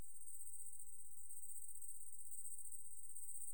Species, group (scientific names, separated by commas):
Tettigonia viridissima, Orthoptera